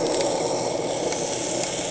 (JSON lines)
{"label": "anthrophony, boat engine", "recorder": "HydroMoth"}